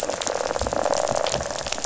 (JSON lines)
{"label": "biophony, rattle", "recorder": "SoundTrap 500"}